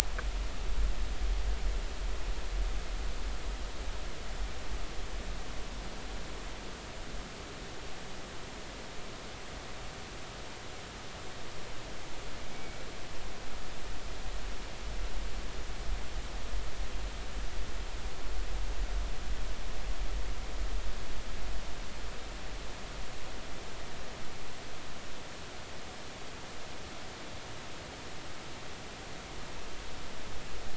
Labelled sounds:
12.5	12.8	killer whale, Bigg's (transient), 2.2 to 2.3 kHz

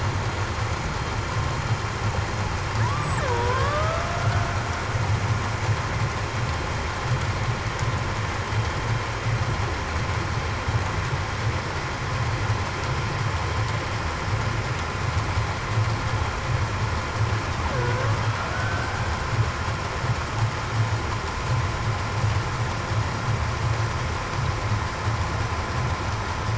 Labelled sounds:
2.8	4.3	killer whale, Bigg's (transient), 0.45 to 8.0 kHz
17.7	18.1	killer whale, Bigg's (transient), 1.4 to 1.6 kHz
18.5	18.9	killer whale, Bigg's (transient), 1.5 to 1.6 kHz

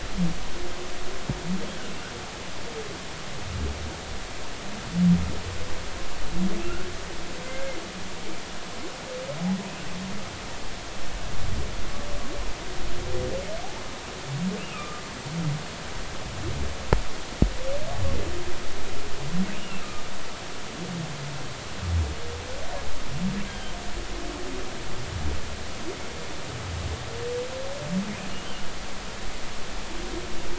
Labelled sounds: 7.5	7.8	humpback whale, 2.0 to 2.2 kHz
14.6	15.0	humpback whale, 1.1 to 2.9 kHz
19.5	19.8	humpback whale, 2.6 to 2.9 kHz
23.5	23.8	humpback whale, 1.5 to 3.3 kHz

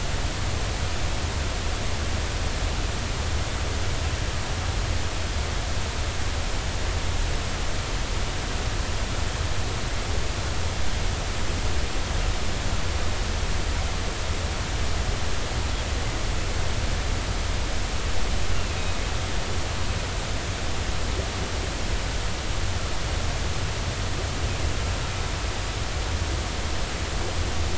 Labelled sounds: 18.5	19.0	humpback whale, 2.5 to 2.9 kHz

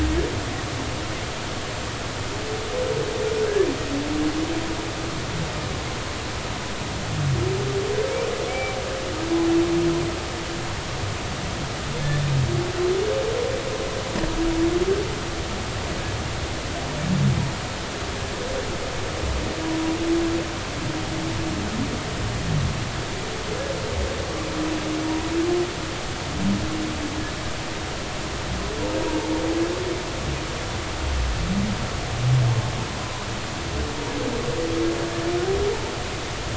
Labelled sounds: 8.5	8.8	humpback whale, 2.2 to 2.4 kHz
33.0	33.2	humpback whale, 0.96 to 1.1 kHz

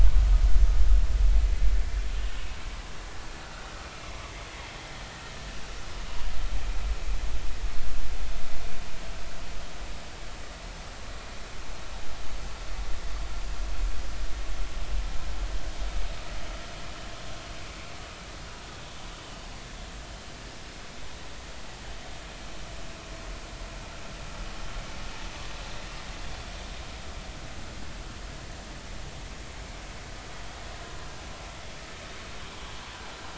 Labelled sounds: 3.8	4.1	vessel noise, 2.3 to 2.5 kHz

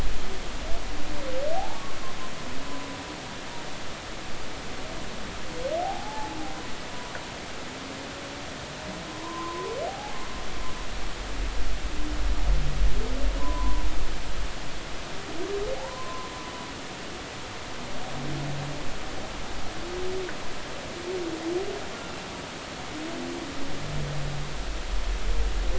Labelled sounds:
1.5	1.8	humpback whale, 0.80 to 0.96 kHz
2.6	2.9	humpback whale, 0.96 to 1.1 kHz
5.8	6.4	humpback whale, 0.80 to 0.93 kHz
9.0	10.2	humpback whale, 0.80 to 1.1 kHz
13.4	13.8	humpback whale, 0.93 to 1.1 kHz
15.8	16.3	humpback whale, 0.80 to 1.1 kHz

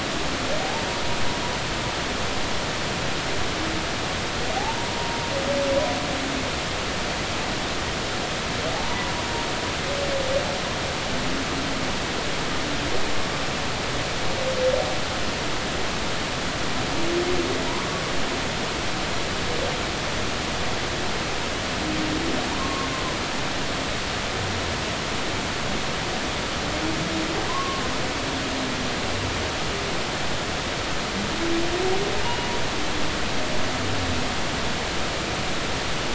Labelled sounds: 0.6	0.9	humpback whale, 0.80 to 0.96 kHz
4.6	5.3	humpback whale, 0.80 to 1.0 kHz
8.8	9.2	humpback whale, 0.86 to 1.0 kHz
22.4	22.9	humpback whale, 0.80 to 1.1 kHz
27.5	27.8	humpback whale, 0.96 to 1.2 kHz
32.2	32.5	humpback whale, 0.86 to 2.9 kHz

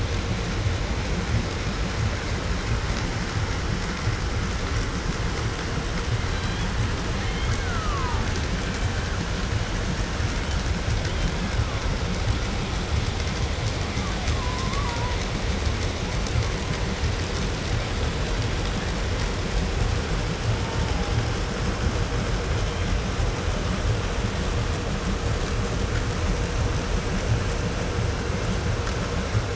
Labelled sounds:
6.2	6.7	killer whale, Bigg's (transient), call T01, 0.84 to 4.3 kHz
7.0	9.2	killer whale, Bigg's (transient), 0.52 to 3.5 kHz
10.3	12.2	killer whale, Bigg's (transient), 0.73 to 5.4 kHz
13.7	15.5	killer whale, 0.73 to 1.9 kHz
20.4	21.4	killer whale, 0.55 to 2.1 kHz
22.4	23.0	killer whale, Bigg's (transient), 0.73 to 3.4 kHz

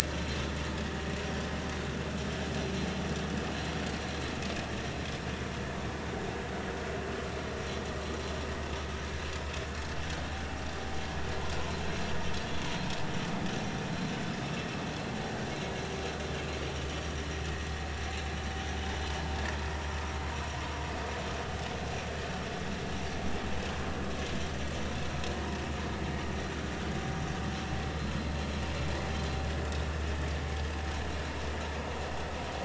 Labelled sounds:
0.0	0.4	vessel noise, 4.0 to 7.9 kHz

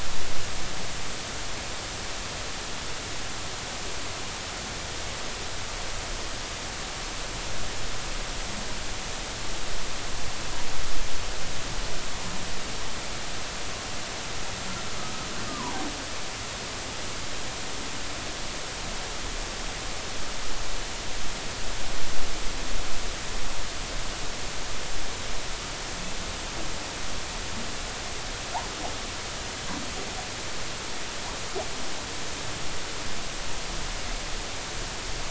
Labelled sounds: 15.5	15.9	humpback whale, 0.80 to 1.3 kHz

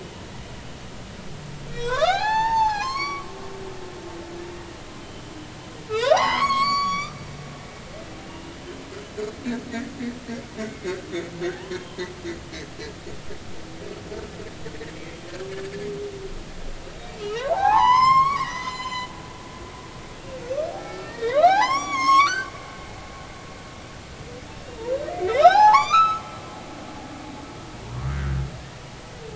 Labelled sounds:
1.7	3.3	humpback whale, 0.80 to 7.7 kHz
5.9	7.2	humpback whale, 0.80 to 8.0 kHz
8.2	8.5	humpback whale, 2.8 to 2.9 kHz
10.7	11.0	humpback whale, 2.1 to 2.2 kHz
11.8	12.1	humpback whale, 0.86 to 1.1 kHz
17.0	19.1	humpback whale, 0.80 to 7.8 kHz
19.5	19.8	humpback whale, 5.8 to 6.3 kHz
20.8	22.5	humpback whale, 0.80 to 8.0 kHz
25.3	26.3	humpback whale, 0.80 to 7.3 kHz

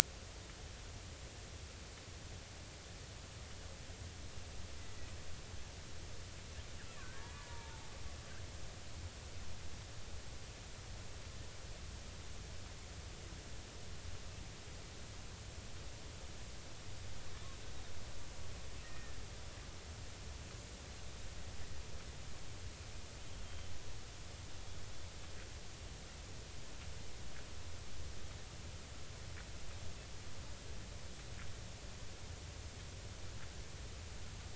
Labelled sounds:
7.4	8.3	killer whale, Bigg's (transient), 0.83 to 1.8 kHz
18.8	19.2	killer whale, Bigg's (transient), 1.7 to 2.0 kHz

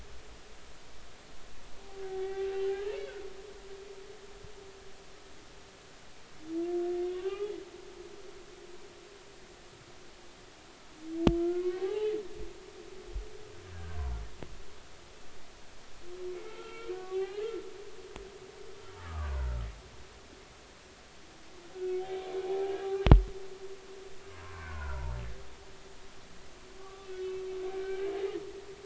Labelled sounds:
1.8	3.0	humpback whale, 0.80 to 2.5 kHz
7.1	7.5	humpback whale, 0.80 to 3.0 kHz
11.5	12.1	humpback whale, 0.80 to 3.1 kHz
13.7	14.0	humpback whale, 1.4 to 1.7 kHz
16.3	17.5	humpback whale, 0.80 to 3.3 kHz
19.0	19.7	humpback whale, 1.1 to 1.7 kHz
22.0	23.1	humpback whale, 0.80 to 3.5 kHz
24.4	25.1	humpback whale, 0.86 to 1.6 kHz
26.8	27.1	humpback whale, 1.1 to 1.2 kHz
27.8	28.1	humpback whale, 1.5 to 2.4 kHz

